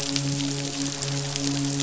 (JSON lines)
{"label": "biophony, midshipman", "recorder": "SoundTrap 500"}